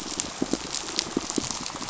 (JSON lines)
{"label": "biophony, pulse", "recorder": "SoundTrap 500"}